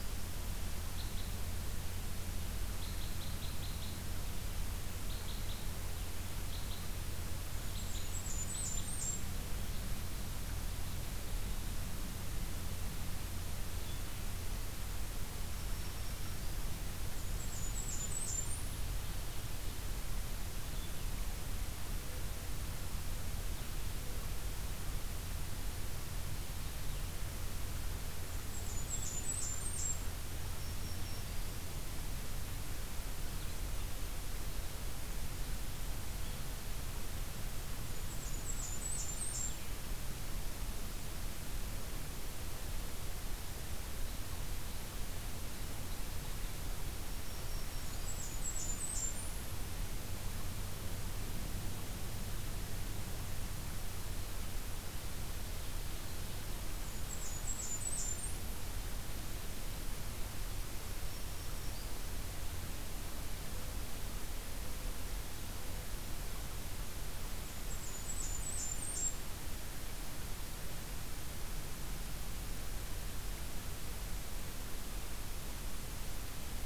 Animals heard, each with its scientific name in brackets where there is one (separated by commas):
Blackburnian Warbler (Setophaga fusca), Red Crossbill (Loxia curvirostra), Black-throated Green Warbler (Setophaga virens)